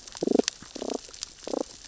{"label": "biophony, damselfish", "recorder": "SoundTrap 600 or HydroMoth"}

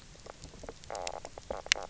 {"label": "biophony, knock croak", "recorder": "SoundTrap 300"}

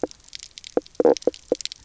{"label": "biophony, knock croak", "recorder": "SoundTrap 300"}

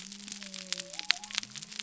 {"label": "biophony", "recorder": "SoundTrap 300"}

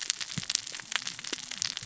{"label": "biophony, cascading saw", "recorder": "SoundTrap 600 or HydroMoth"}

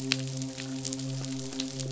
{"label": "biophony, midshipman", "recorder": "SoundTrap 500"}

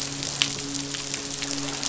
{"label": "biophony, midshipman", "recorder": "SoundTrap 500"}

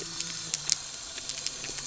{"label": "anthrophony, boat engine", "recorder": "SoundTrap 300"}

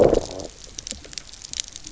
{"label": "biophony, low growl", "recorder": "SoundTrap 300"}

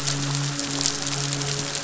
{"label": "biophony, midshipman", "recorder": "SoundTrap 500"}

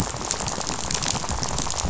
{"label": "biophony, rattle", "recorder": "SoundTrap 500"}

